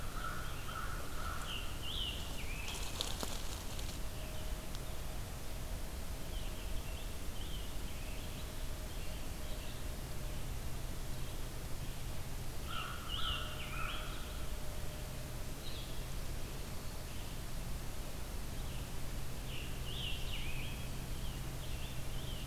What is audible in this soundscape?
Scarlet Tanager, American Crow, Red-eyed Vireo